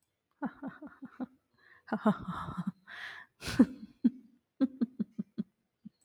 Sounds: Laughter